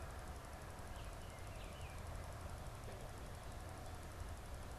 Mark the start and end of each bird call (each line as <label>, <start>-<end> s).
Baltimore Oriole (Icterus galbula), 0.8-2.0 s